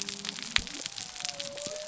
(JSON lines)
{"label": "biophony", "recorder": "SoundTrap 300"}